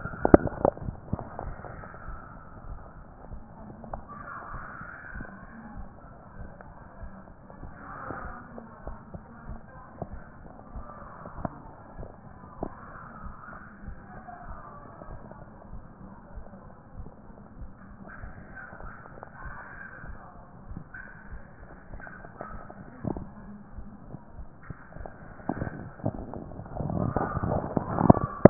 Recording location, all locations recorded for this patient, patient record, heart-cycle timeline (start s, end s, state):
mitral valve (MV)
aortic valve (AV)+aortic valve (AV)+pulmonary valve (PV)+tricuspid valve (TV)+mitral valve (MV)+mitral valve (MV)
#Age: nan
#Sex: Female
#Height: nan
#Weight: nan
#Pregnancy status: True
#Murmur: Absent
#Murmur locations: nan
#Most audible location: nan
#Systolic murmur timing: nan
#Systolic murmur shape: nan
#Systolic murmur grading: nan
#Systolic murmur pitch: nan
#Systolic murmur quality: nan
#Diastolic murmur timing: nan
#Diastolic murmur shape: nan
#Diastolic murmur grading: nan
#Diastolic murmur pitch: nan
#Diastolic murmur quality: nan
#Outcome: Abnormal
#Campaign: 2014 screening campaign